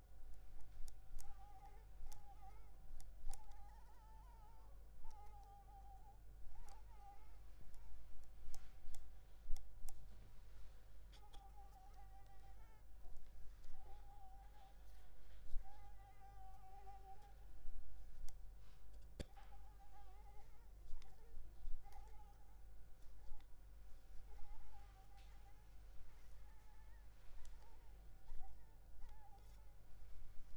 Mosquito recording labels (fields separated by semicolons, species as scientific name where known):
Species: Anopheles arabiensis; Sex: female; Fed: unfed; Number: one; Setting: cup